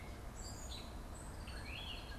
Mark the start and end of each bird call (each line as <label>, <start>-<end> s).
Gray Catbird (Dumetella carolinensis), 0.0-2.2 s
Red-winged Blackbird (Agelaius phoeniceus), 1.2-2.2 s